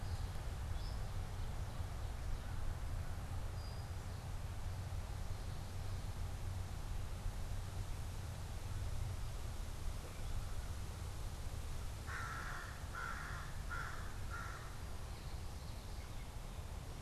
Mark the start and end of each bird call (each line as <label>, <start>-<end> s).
unidentified bird, 0.6-4.1 s
American Crow (Corvus brachyrhynchos), 11.9-15.0 s